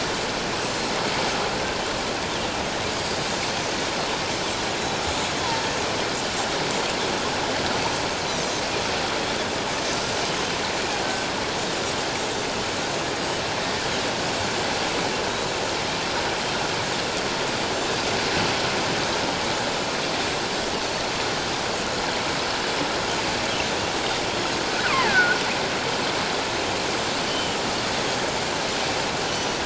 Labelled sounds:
0.6	1.0	Pacific white-sided dolphin, 6.8 to 7.2 kHz
14.3	14.6	Pacific white-sided dolphin, 7.1 to 7.4 kHz
24.9	25.4	Pacific white-sided dolphin, 0.78 to 2.6 kHz
27.3	27.6	Pacific white-sided dolphin, 2.9 to 3.2 kHz
29.3	29.6	Pacific white-sided dolphin, 5.8 to 6.0 kHz

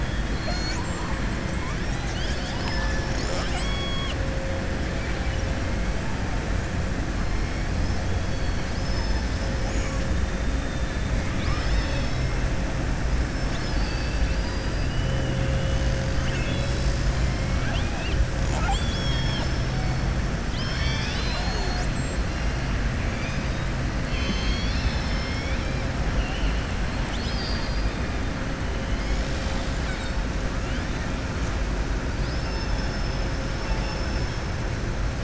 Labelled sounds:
0.2	1.2	killer whale, southern resident, 0.67 to 7.7 kHz
4.9	5.4	killer whale, southern resident, 1.4 to 3.2 kHz
8.2	10.1	killer whale, southern resident, 3.5 to 7.5 kHz
11.2	12.3	killer whale, southern resident, 1.1 to 5.4 kHz
17.5	19.6	killer whale, southern resident, 0.69 to 8.0 kHz
24.0	25.8	killer whale, southern resident, 2.0 to 6.5 kHz
26.1	26.7	killer whale, southern resident, 2.6 to 3.0 kHz
27.0	27.9	killer whale, southern resident, 3.0 to 7.7 kHz
32.1	34.4	killer whale, southern resident, 3.9 to 6.1 kHz

